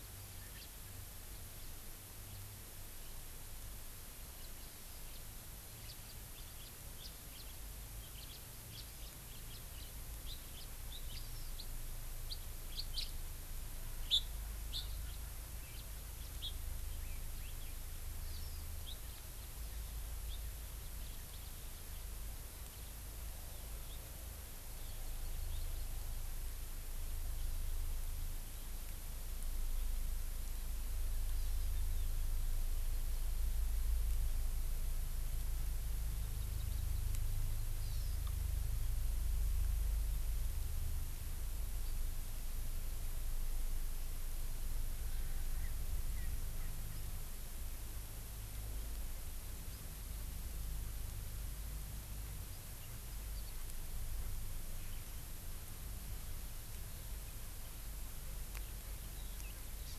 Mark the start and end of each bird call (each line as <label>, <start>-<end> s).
House Finch (Haemorhous mexicanus), 0.6-0.7 s
House Finch (Haemorhous mexicanus), 5.9-6.0 s
House Finch (Haemorhous mexicanus), 6.6-6.7 s
House Finch (Haemorhous mexicanus), 7.0-7.5 s
House Finch (Haemorhous mexicanus), 8.2-8.4 s
House Finch (Haemorhous mexicanus), 8.7-10.0 s
House Finch (Haemorhous mexicanus), 10.3-10.7 s
House Finch (Haemorhous mexicanus), 11.1-11.3 s
House Finch (Haemorhous mexicanus), 12.7-13.1 s
Hawaii Amakihi (Chlorodrepanis virens), 18.3-18.6 s
Hawaii Amakihi (Chlorodrepanis virens), 36.3-37.5 s
Hawaii Amakihi (Chlorodrepanis virens), 37.8-38.2 s
Erckel's Francolin (Pternistis erckelii), 45.1-47.0 s
Hawaii Amakihi (Chlorodrepanis virens), 59.9-60.0 s